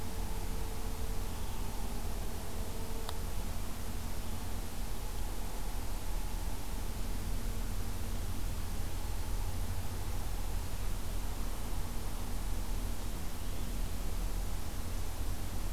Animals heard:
forest ambience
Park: Acadia National Park